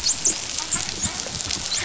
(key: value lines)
label: biophony, dolphin
recorder: SoundTrap 500